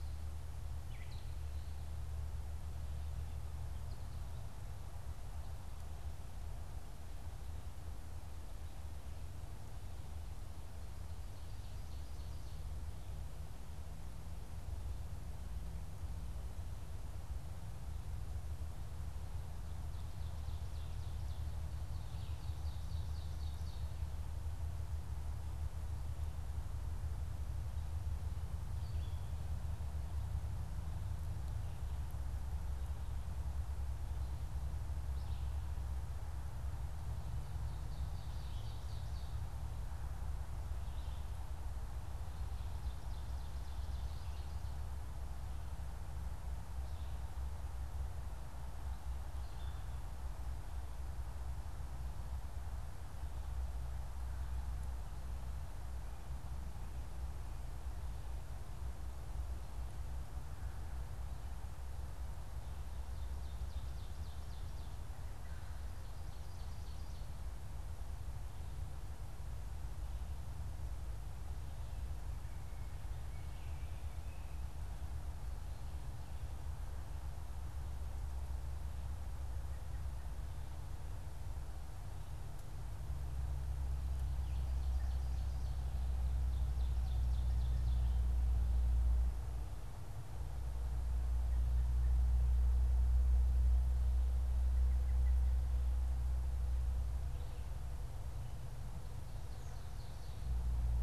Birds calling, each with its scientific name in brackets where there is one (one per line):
American Robin (Turdus migratorius)
Gray Catbird (Dumetella carolinensis)
Red-eyed Vireo (Vireo olivaceus)
Ovenbird (Seiurus aurocapilla)